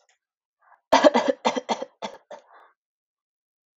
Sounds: Cough